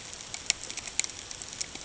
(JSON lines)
{"label": "ambient", "recorder": "HydroMoth"}